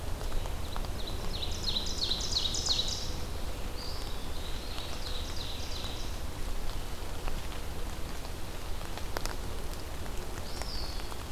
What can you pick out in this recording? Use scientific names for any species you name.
Seiurus aurocapilla, Contopus virens, Vireo olivaceus